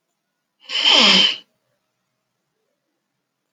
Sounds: Sniff